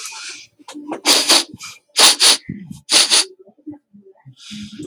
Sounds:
Sniff